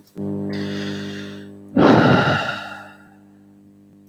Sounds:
Sigh